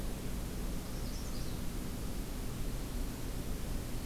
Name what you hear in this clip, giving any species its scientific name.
Setophaga magnolia